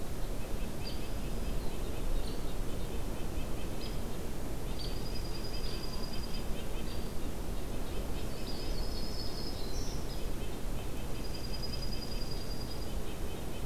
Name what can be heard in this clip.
Red-breasted Nuthatch, Hairy Woodpecker, Dark-eyed Junco, Yellow-rumped Warbler, Black-throated Green Warbler